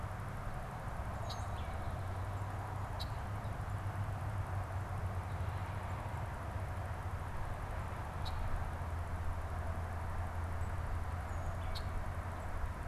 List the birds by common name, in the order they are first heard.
Tufted Titmouse, Red-winged Blackbird